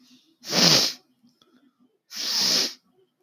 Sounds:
Throat clearing